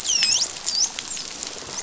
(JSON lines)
{"label": "biophony, dolphin", "recorder": "SoundTrap 500"}